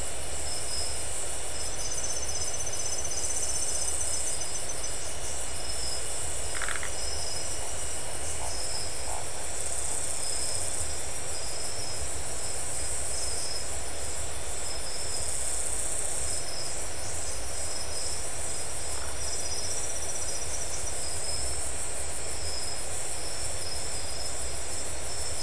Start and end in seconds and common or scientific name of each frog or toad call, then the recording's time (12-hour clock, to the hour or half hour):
6.5	6.9	Phyllomedusa distincta
18.9	19.2	Phyllomedusa distincta
12:30am